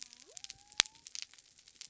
{"label": "biophony", "recorder": "SoundTrap 300"}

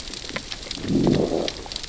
{"label": "biophony, growl", "recorder": "SoundTrap 600 or HydroMoth"}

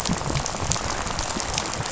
{"label": "biophony, rattle", "recorder": "SoundTrap 500"}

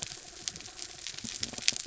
{"label": "anthrophony, mechanical", "recorder": "SoundTrap 300"}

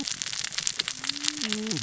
{"label": "biophony, cascading saw", "recorder": "SoundTrap 600 or HydroMoth"}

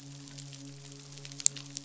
{"label": "biophony, midshipman", "recorder": "SoundTrap 500"}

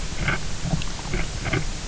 {"label": "anthrophony, boat engine", "recorder": "SoundTrap 300"}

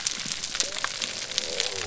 {"label": "biophony", "recorder": "SoundTrap 300"}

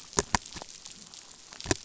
{"label": "biophony", "recorder": "SoundTrap 500"}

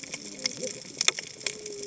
{"label": "biophony, cascading saw", "recorder": "HydroMoth"}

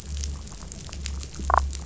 {"label": "biophony, damselfish", "recorder": "SoundTrap 500"}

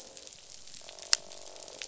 {"label": "biophony, croak", "recorder": "SoundTrap 500"}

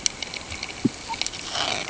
{"label": "ambient", "recorder": "HydroMoth"}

